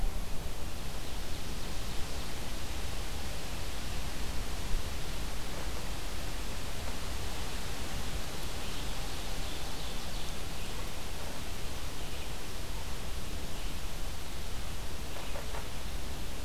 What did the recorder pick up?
Ovenbird, Red-eyed Vireo